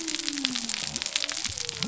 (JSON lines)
{"label": "biophony", "recorder": "SoundTrap 300"}